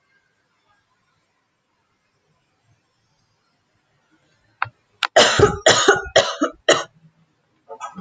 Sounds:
Cough